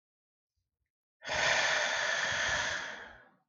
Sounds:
Sigh